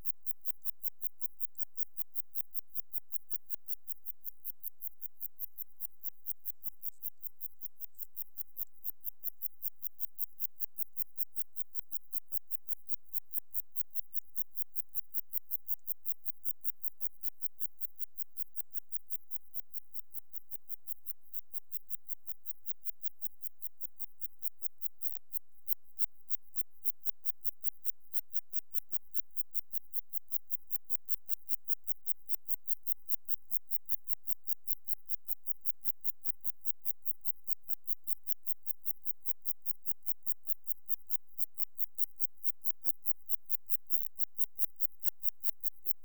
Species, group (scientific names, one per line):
Zeuneriana abbreviata
Orthoptera